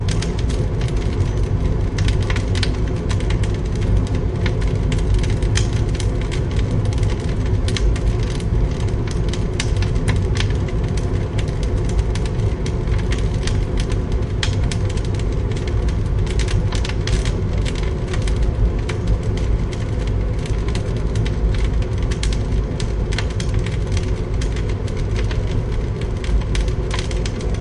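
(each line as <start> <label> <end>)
0.0 An furnace is burning loudly and constantly. 27.6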